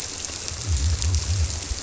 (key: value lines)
label: biophony
recorder: SoundTrap 300